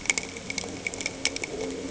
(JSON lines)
{"label": "anthrophony, boat engine", "recorder": "HydroMoth"}